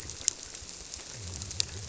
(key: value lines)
label: biophony
recorder: SoundTrap 300